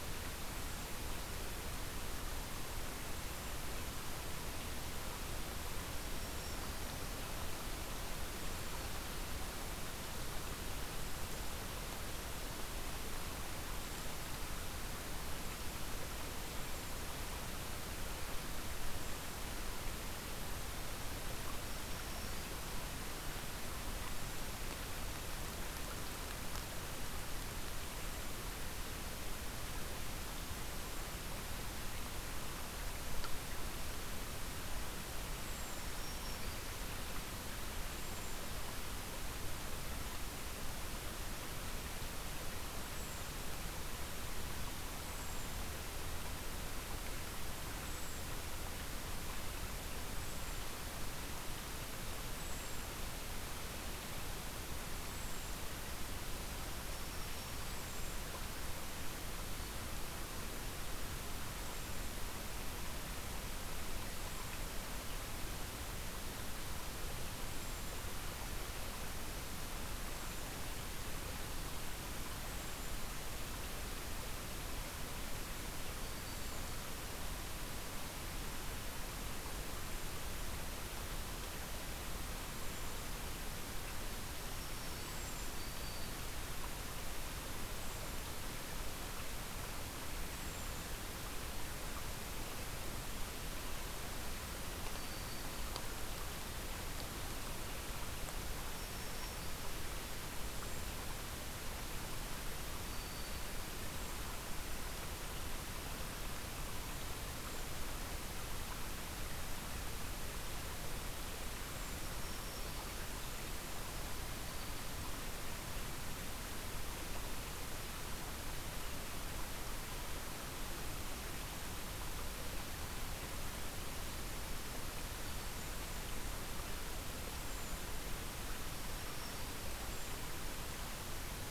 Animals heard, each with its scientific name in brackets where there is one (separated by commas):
Cedar Waxwing (Bombycilla cedrorum), Black-throated Green Warbler (Setophaga virens)